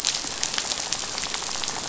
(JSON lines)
{"label": "biophony, rattle", "recorder": "SoundTrap 500"}